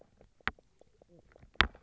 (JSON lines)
{"label": "biophony, knock croak", "recorder": "SoundTrap 300"}